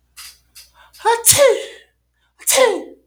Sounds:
Sneeze